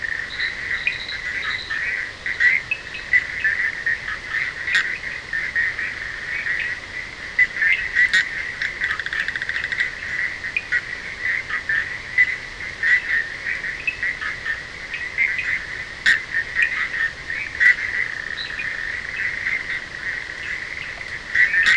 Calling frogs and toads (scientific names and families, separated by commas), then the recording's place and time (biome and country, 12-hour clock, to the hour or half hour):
Boana leptolineata (Hylidae), Boana bischoffi (Hylidae), Sphaenorhynchus surdus (Hylidae)
Atlantic Forest, Brazil, 1:30am